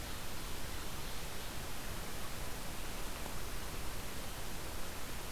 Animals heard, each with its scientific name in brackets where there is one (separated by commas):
Ovenbird (Seiurus aurocapilla)